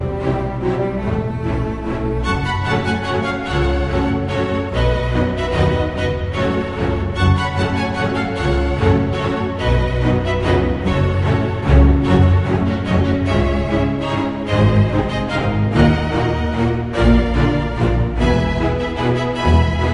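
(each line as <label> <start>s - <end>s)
Classical orchestral passage with viola, cello, and bass playing a cinematic waltz-style accompaniment in a steady, harmonious rhythm. 0.1s - 2.8s
A solo violin plays a melodic line, soaring smoothly and expressively above the orchestral background. 2.9s - 7.3s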